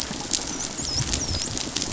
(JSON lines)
{"label": "biophony, dolphin", "recorder": "SoundTrap 500"}